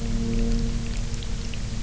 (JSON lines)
{"label": "biophony", "recorder": "SoundTrap 300"}